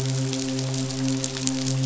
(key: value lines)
label: biophony, midshipman
recorder: SoundTrap 500